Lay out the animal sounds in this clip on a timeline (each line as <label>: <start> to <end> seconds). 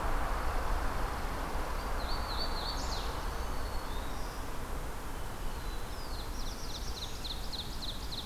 Chipping Sparrow (Spizella passerina): 0.0 to 1.4 seconds
Hooded Warbler (Setophaga citrina): 1.6 to 3.2 seconds
Black-throated Green Warbler (Setophaga virens): 2.8 to 4.8 seconds
Black-throated Blue Warbler (Setophaga caerulescens): 5.2 to 7.7 seconds
Ovenbird (Seiurus aurocapilla): 6.1 to 8.3 seconds